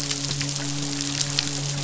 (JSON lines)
{"label": "biophony, midshipman", "recorder": "SoundTrap 500"}